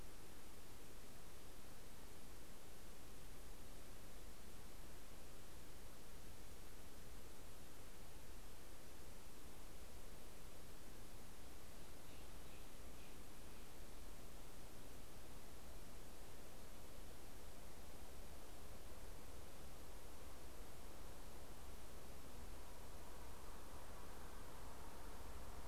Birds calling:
Steller's Jay (Cyanocitta stelleri)

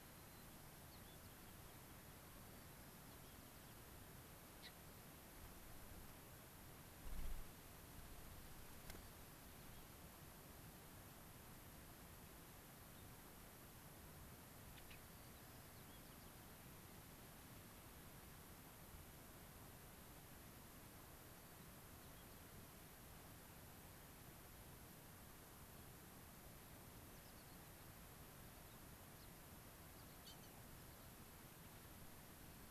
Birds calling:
Gray-crowned Rosy-Finch (Leucosticte tephrocotis)
Mountain Chickadee (Poecile gambeli)
White-crowned Sparrow (Zonotrichia leucophrys)

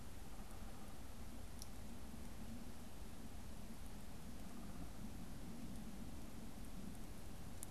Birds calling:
Downy Woodpecker (Dryobates pubescens)

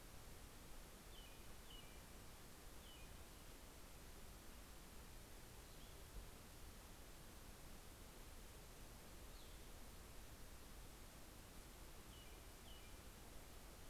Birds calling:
American Robin (Turdus migratorius)

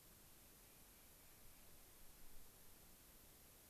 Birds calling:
Clark's Nutcracker (Nucifraga columbiana)

